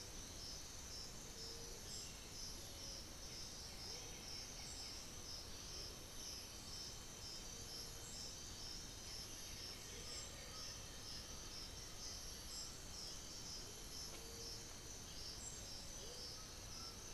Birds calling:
unidentified bird
Undulated Tinamou (Crypturellus undulatus)
Black-billed Thrush (Turdus ignobilis)
White-winged Becard (Pachyramphus polychopterus)
Amazonian Motmot (Momotus momota)

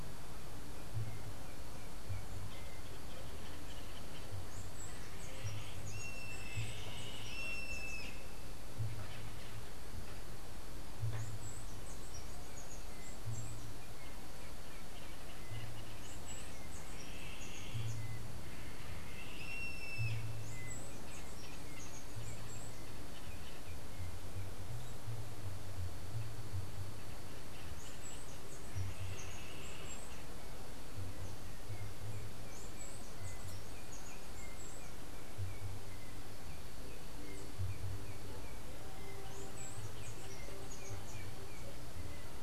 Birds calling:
Andean Emerald (Uranomitra franciae)
Yellow-headed Caracara (Milvago chimachima)

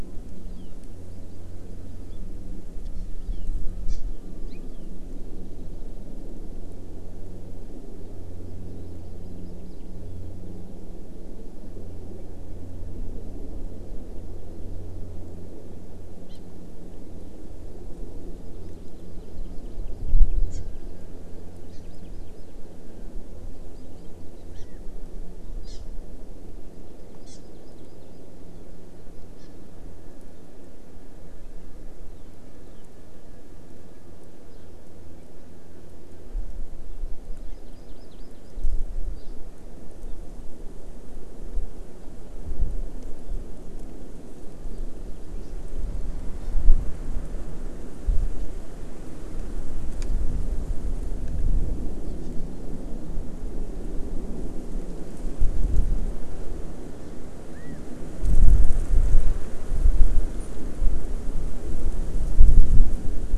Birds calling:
Hawaii Amakihi (Chlorodrepanis virens)
California Quail (Callipepla californica)

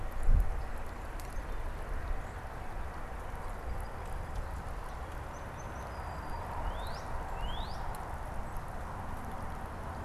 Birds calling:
Northern Cardinal (Cardinalis cardinalis)
Song Sparrow (Melospiza melodia)

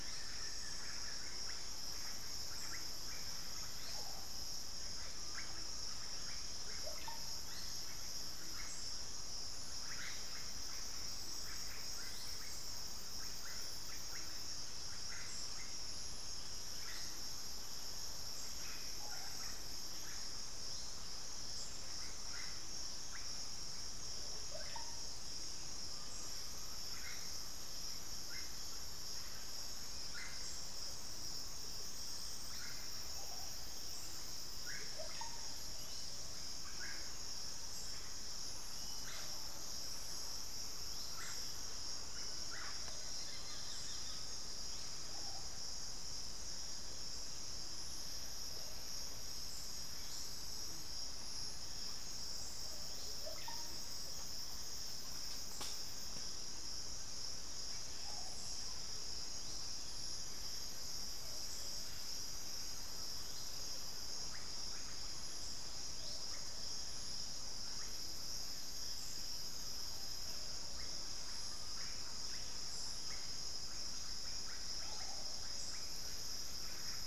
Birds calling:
Undulated Tinamou (Crypturellus undulatus)
Plain-winged Antshrike (Thamnophilus schistaceus)
Russet-backed Oropendola (Psarocolius angustifrons)
unidentified bird
Buff-throated Woodcreeper (Xiphorhynchus guttatus)

